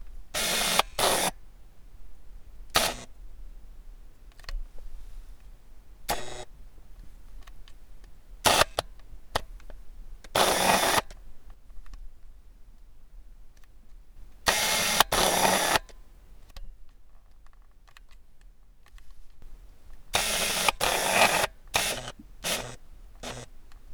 What kind of buzzing noise is the radio making?
static